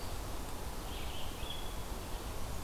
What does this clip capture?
Red-eyed Vireo